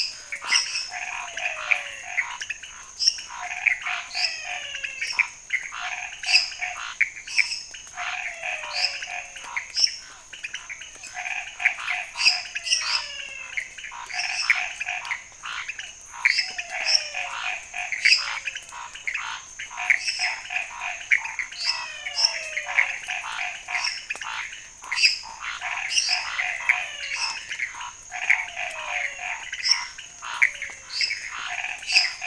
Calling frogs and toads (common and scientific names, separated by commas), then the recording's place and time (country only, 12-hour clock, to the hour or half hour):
lesser tree frog (Dendropsophus minutus), pointedbelly frog (Leptodactylus podicipinus), Chaco tree frog (Boana raniceps), menwig frog (Physalaemus albonotatus), Scinax fuscovarius, Pithecopus azureus, Physalaemus cuvieri
Brazil, ~11pm